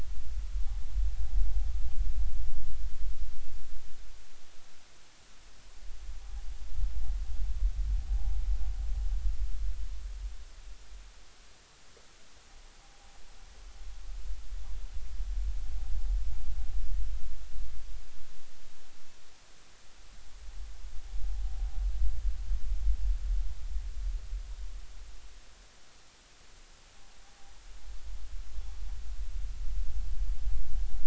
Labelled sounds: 8.1	8.4	noise likely from the mooring, 0.80 to 0.86 kHz

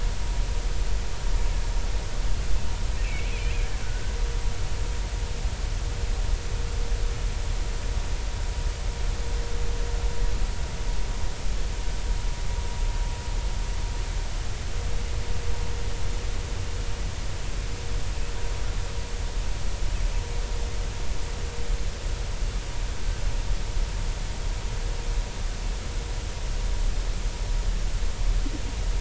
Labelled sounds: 3.0	3.5	killer whale, Bigg's (transient), 2.1 to 2.8 kHz
3.8	4.1	killer whale, Bigg's (transient), 1.4 to 1.6 kHz

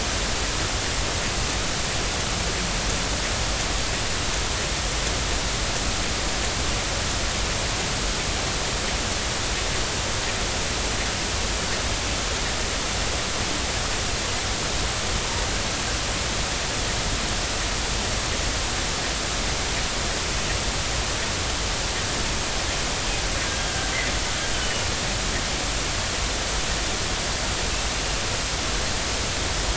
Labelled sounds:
24.5	24.8	killer whale, northern resident, 2.8 to 3.1 kHz

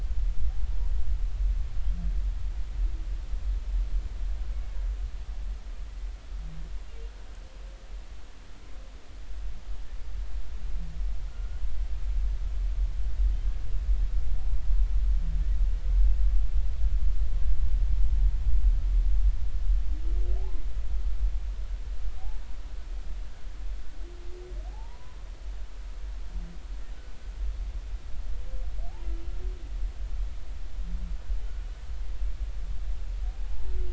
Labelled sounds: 11.3	11.6	humpback whale, 1.3 to 1.5 kHz
20.4	20.6	humpback whale, 0.80 to 1.1 kHz
24.7	25.2	humpback whale, 0.80 to 1.1 kHz
33.4	33.7	humpback whale, 0.80 to 0.93 kHz

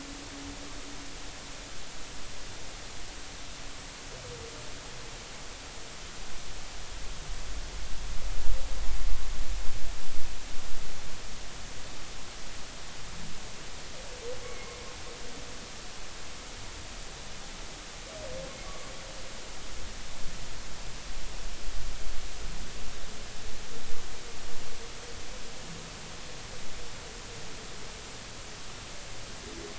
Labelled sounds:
14.4	14.8	humpback whale, 2.1 to 2.3 kHz

